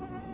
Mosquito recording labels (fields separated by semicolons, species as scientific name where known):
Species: Anopheles quadriannulatus; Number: one; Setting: insect culture